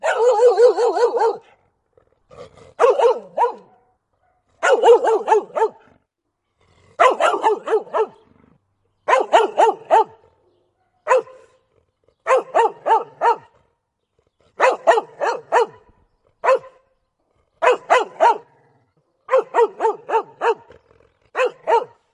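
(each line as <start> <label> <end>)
0.0 A dog barks aggressively and repeatedly nearby. 1.6
2.3 A dog barks aggressively and repeatedly nearby. 3.8
4.6 A dog barks aggressively and repeatedly nearby. 6.0
6.9 A dog barks aggressively and repeatedly nearby. 8.1
9.0 A dog barks aggressively and repeatedly nearby. 10.2
11.0 A dog barks aggressively nearby. 11.6
12.2 A dog barks aggressively and repeatedly nearby. 13.6
14.6 A dog barks aggressively and repeatedly. 16.8
17.6 A dog barks aggressively and repeatedly nearby. 18.6
19.2 A dog barks aggressively and repeatedly nearby. 22.1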